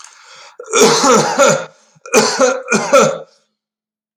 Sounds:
Cough